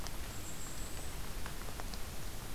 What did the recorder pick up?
Golden-crowned Kinglet